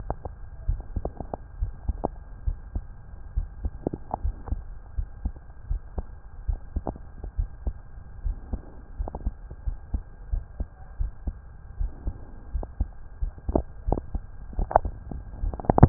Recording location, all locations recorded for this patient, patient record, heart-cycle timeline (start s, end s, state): aortic valve (AV)
aortic valve (AV)+pulmonary valve (PV)+tricuspid valve (TV)+mitral valve (MV)
#Age: Child
#Sex: Male
#Height: 132.0 cm
#Weight: 50.6 kg
#Pregnancy status: False
#Murmur: Absent
#Murmur locations: nan
#Most audible location: nan
#Systolic murmur timing: nan
#Systolic murmur shape: nan
#Systolic murmur grading: nan
#Systolic murmur pitch: nan
#Systolic murmur quality: nan
#Diastolic murmur timing: nan
#Diastolic murmur shape: nan
#Diastolic murmur grading: nan
#Diastolic murmur pitch: nan
#Diastolic murmur quality: nan
#Outcome: Normal
#Campaign: 2015 screening campaign
0.00	1.56	unannotated
1.56	1.72	S1
1.72	1.86	systole
1.86	2.02	S2
2.02	2.42	diastole
2.42	2.58	S1
2.58	2.74	systole
2.74	2.90	S2
2.90	3.30	diastole
3.30	3.48	S1
3.48	3.62	systole
3.62	3.78	S2
3.78	4.18	diastole
4.18	4.36	S1
4.36	4.49	systole
4.49	4.64	S2
4.64	4.95	diastole
4.95	5.10	S1
5.10	5.22	systole
5.22	5.34	S2
5.34	5.66	diastole
5.66	5.80	S1
5.80	5.94	systole
5.94	6.06	S2
6.06	6.44	diastole
6.44	6.62	S1
6.62	6.74	systole
6.74	6.85	S2
6.85	7.34	diastole
7.34	7.50	S1
7.50	7.63	systole
7.63	7.80	S2
7.80	8.20	diastole
8.20	8.38	S1
8.38	8.50	systole
8.50	8.62	S2
8.62	8.95	diastole
8.95	9.12	S1
9.12	9.24	systole
9.24	9.36	S2
9.36	9.64	diastole
9.64	9.78	S1
9.78	9.90	systole
9.90	10.04	S2
10.04	10.30	diastole
10.30	10.44	S1
10.44	10.56	systole
10.56	10.66	S2
10.66	10.96	diastole
10.96	11.12	S1
11.12	11.23	systole
11.23	11.38	S2
11.38	11.78	diastole
11.78	11.92	S1
11.92	12.04	systole
12.04	12.16	S2
12.16	12.52	diastole
12.52	12.66	S1
12.66	12.78	systole
12.78	12.92	S2
12.92	13.20	diastole
13.20	13.34	S1
13.34	13.45	systole
13.45	13.62	S2
13.62	13.85	diastole
13.85	13.97	S1
13.97	14.10	systole
14.10	14.22	S2
14.22	14.55	diastole
14.55	14.69	S1
14.69	15.89	unannotated